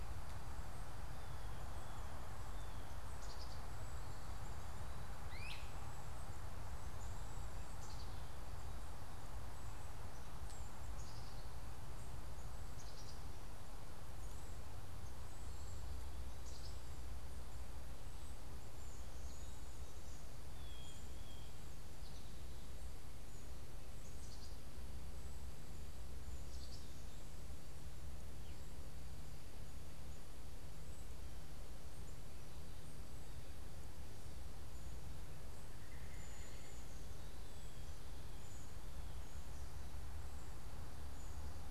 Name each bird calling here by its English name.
unidentified bird, Great Crested Flycatcher, Black-capped Chickadee, Blue Jay